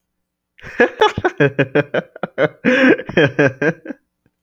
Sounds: Laughter